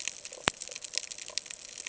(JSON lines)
{"label": "ambient", "recorder": "HydroMoth"}